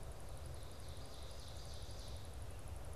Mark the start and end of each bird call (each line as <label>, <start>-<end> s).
Ovenbird (Seiurus aurocapilla), 0.3-2.3 s